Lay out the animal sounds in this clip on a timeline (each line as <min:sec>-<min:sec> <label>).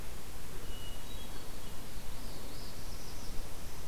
0:00.6-0:01.7 Hermit Thrush (Catharus guttatus)
0:01.7-0:03.4 Northern Parula (Setophaga americana)
0:03.2-0:03.9 Black-throated Green Warbler (Setophaga virens)